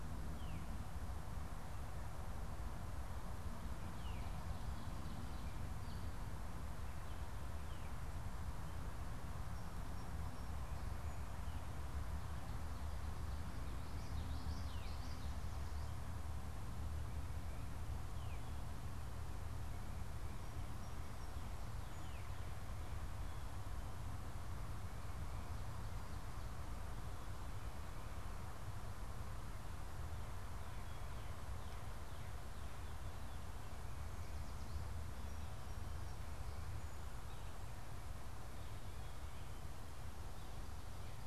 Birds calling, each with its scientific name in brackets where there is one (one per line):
Veery (Catharus fuscescens)
Common Yellowthroat (Geothlypis trichas)